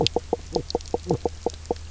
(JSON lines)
{"label": "biophony, knock croak", "recorder": "SoundTrap 300"}